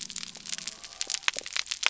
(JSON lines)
{"label": "biophony", "recorder": "SoundTrap 300"}